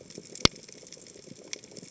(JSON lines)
{"label": "biophony, chatter", "recorder": "HydroMoth"}